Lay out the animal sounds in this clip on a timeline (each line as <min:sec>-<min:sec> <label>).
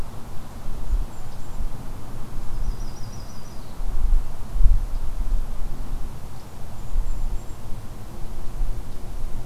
0:00.6-0:01.7 Golden-crowned Kinglet (Regulus satrapa)
0:02.4-0:03.8 Yellow-rumped Warbler (Setophaga coronata)
0:06.3-0:07.6 Golden-crowned Kinglet (Regulus satrapa)